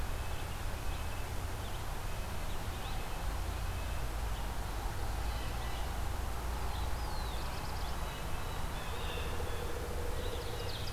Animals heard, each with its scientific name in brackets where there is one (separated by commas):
Black-throated Blue Warbler (Setophaga caerulescens), Red-breasted Nuthatch (Sitta canadensis), Red-eyed Vireo (Vireo olivaceus), Ovenbird (Seiurus aurocapilla), Blue Jay (Cyanocitta cristata)